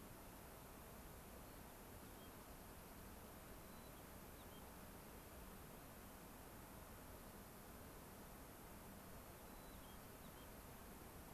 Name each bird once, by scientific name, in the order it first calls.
Zonotrichia leucophrys, Junco hyemalis